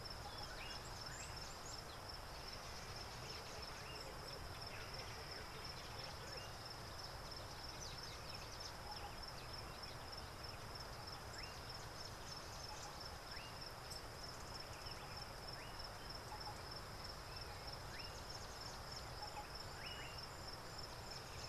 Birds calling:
Red-cheeked Cordonbleu (Uraeginthus bengalus), Collared Sunbird (Hedydipna collaris), Slate-colored Boubou (Laniarius funebris)

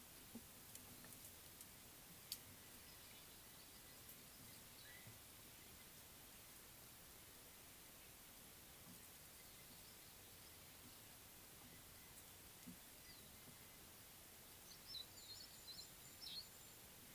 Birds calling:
Meyer's Parrot (Poicephalus meyeri)

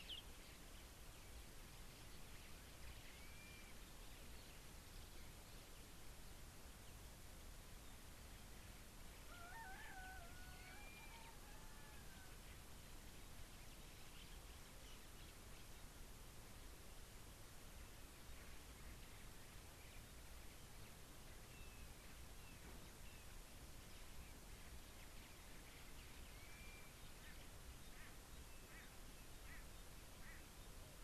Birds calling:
Blue-naped Mousebird (Urocolius macrourus)

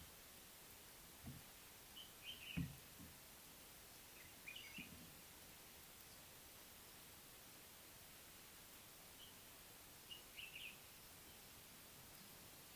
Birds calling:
Common Bulbul (Pycnonotus barbatus)

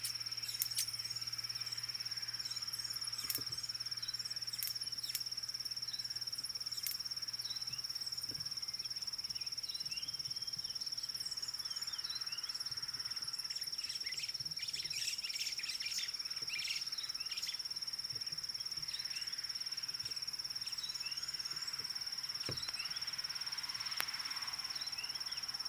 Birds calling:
White Helmetshrike (Prionops plumatus), White-browed Sparrow-Weaver (Plocepasser mahali), Red-cheeked Cordonbleu (Uraeginthus bengalus)

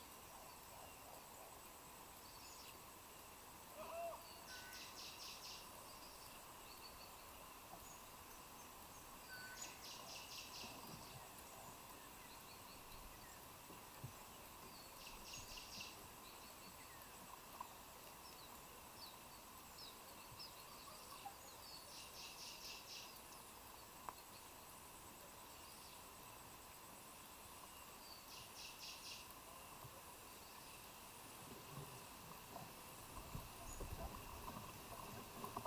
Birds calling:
Kikuyu White-eye (Zosterops kikuyuensis), Black-fronted Bushshrike (Telophorus nigrifrons), Cinnamon Bracken-Warbler (Bradypterus cinnamomeus)

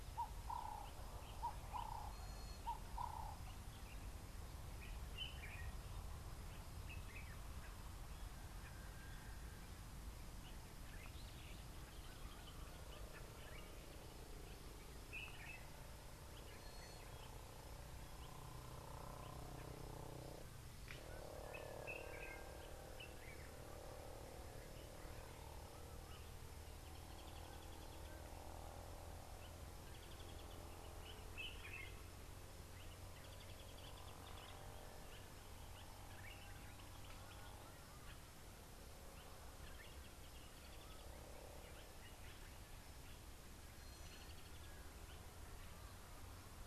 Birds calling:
Gray-backed Camaroptera (Camaroptera brevicaudata), Common Bulbul (Pycnonotus barbatus)

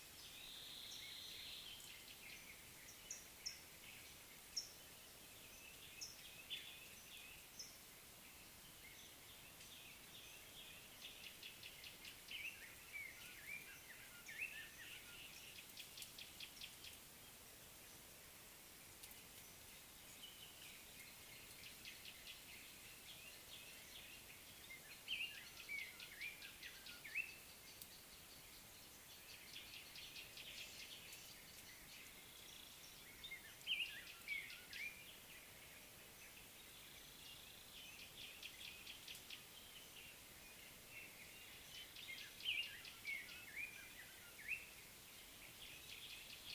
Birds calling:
Gray-backed Camaroptera (Camaroptera brevicaudata), Cape Robin-Chat (Cossypha caffra), Chestnut-throated Apalis (Apalis porphyrolaema)

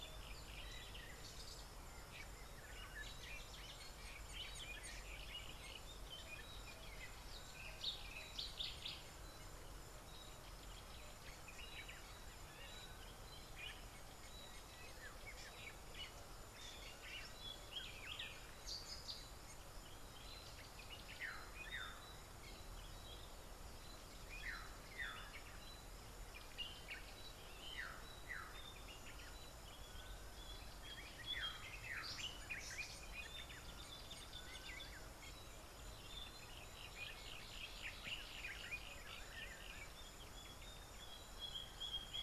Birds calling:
Yellow-breasted Apalis (Apalis flavida), Common Bulbul (Pycnonotus barbatus), Slate-colored Boubou (Laniarius funebris)

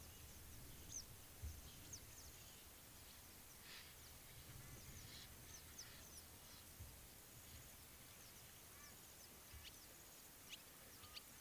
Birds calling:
Western Yellow Wagtail (Motacilla flava), Egyptian Goose (Alopochen aegyptiaca)

